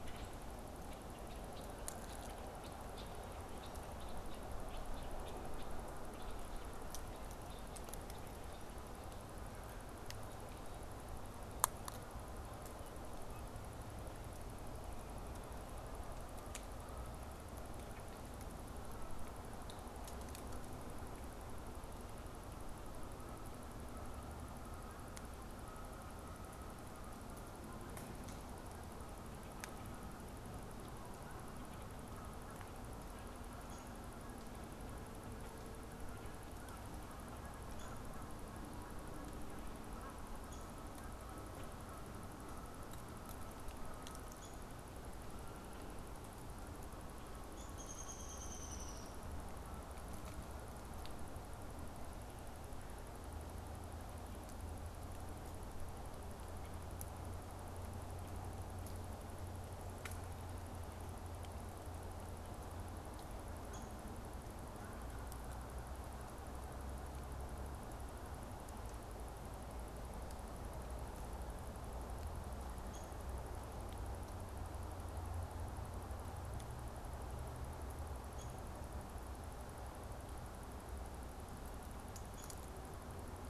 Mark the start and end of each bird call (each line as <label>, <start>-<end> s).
Red-winged Blackbird (Agelaius phoeniceus), 0.0-9.0 s
Canada Goose (Branta canadensis), 22.2-50.0 s
Downy Woodpecker (Dryobates pubescens), 33.6-34.0 s
Downy Woodpecker (Dryobates pubescens), 37.7-38.1 s
Downy Woodpecker (Dryobates pubescens), 40.4-40.8 s
Downy Woodpecker (Dryobates pubescens), 44.3-44.7 s
Downy Woodpecker (Dryobates pubescens), 47.4-49.3 s
Downy Woodpecker (Dryobates pubescens), 63.5-63.9 s
Downy Woodpecker (Dryobates pubescens), 72.8-73.3 s
Downy Woodpecker (Dryobates pubescens), 78.1-78.8 s